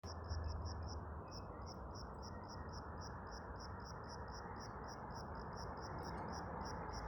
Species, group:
Eumodicogryllus bordigalensis
Orthoptera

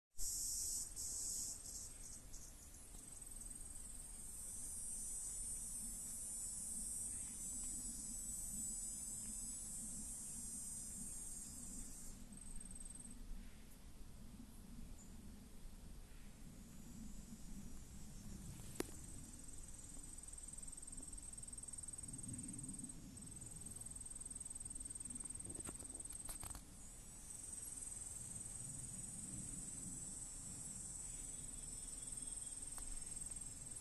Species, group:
Neotibicen canicularis
Cicadidae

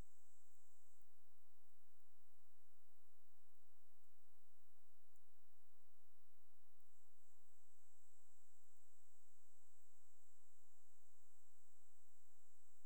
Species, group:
Leptophyes punctatissima
Orthoptera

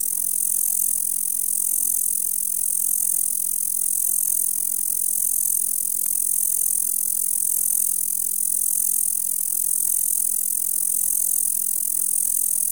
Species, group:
Bradyporus dasypus
Orthoptera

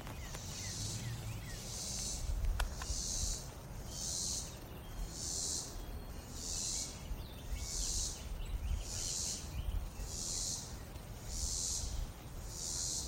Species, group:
Neotibicen robinsonianus
Cicadidae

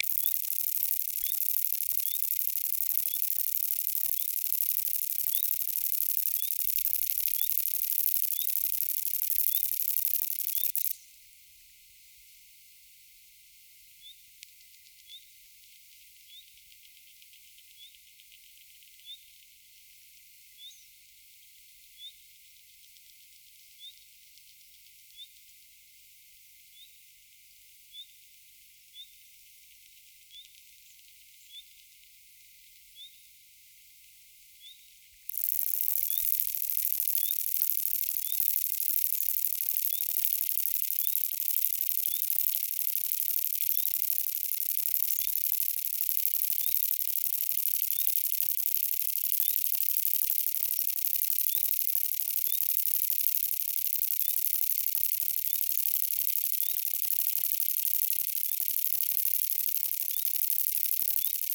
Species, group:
Conocephalus fuscus
Orthoptera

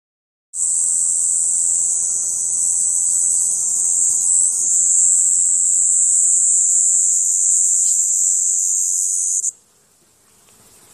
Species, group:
Galanga labeculata
Cicadidae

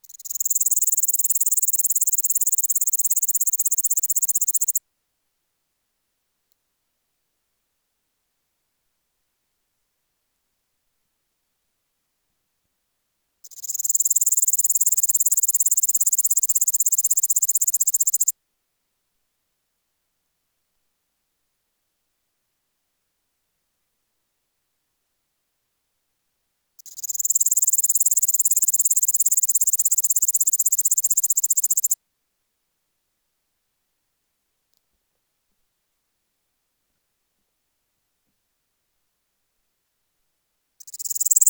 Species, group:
Pholidoptera littoralis
Orthoptera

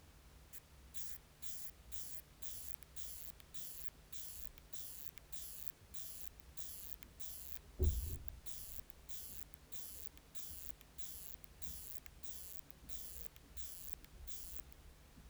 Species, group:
Isophya kraussii
Orthoptera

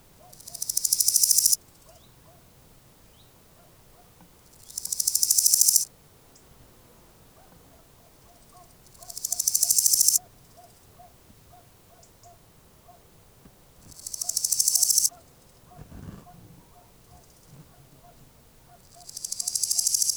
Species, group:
Chrysochraon dispar
Orthoptera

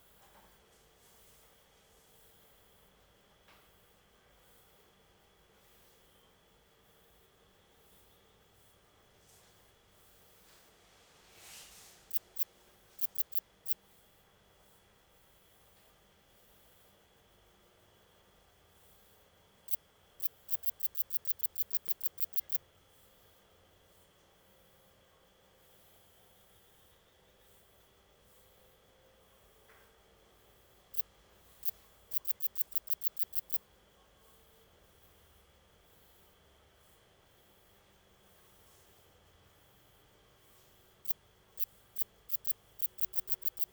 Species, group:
Tessellana tessellata
Orthoptera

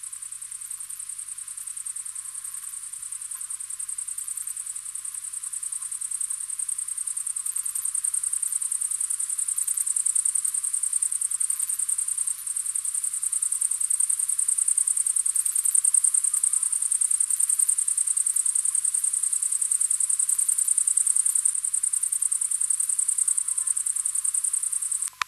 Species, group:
Tettigonia viridissima
Orthoptera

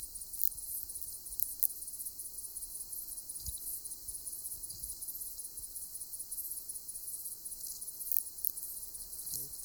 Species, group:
Phaneroptera falcata
Orthoptera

